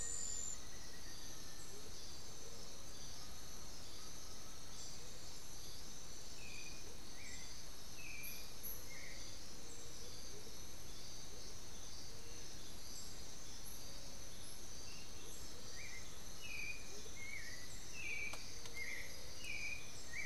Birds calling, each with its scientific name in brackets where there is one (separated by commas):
Black-billed Thrush (Turdus ignobilis), unidentified bird, Black-faced Antthrush (Formicarius analis), Amazonian Motmot (Momotus momota), Undulated Tinamou (Crypturellus undulatus)